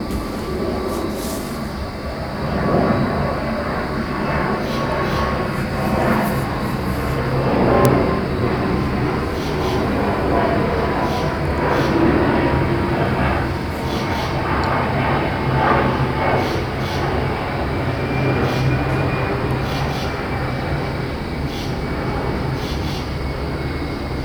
Is there a plane overhead?
yes